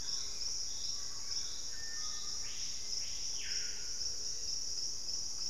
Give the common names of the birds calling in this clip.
Thrush-like Wren, Hauxwell's Thrush, Screaming Piha